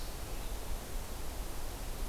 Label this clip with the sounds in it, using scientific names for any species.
Vireo solitarius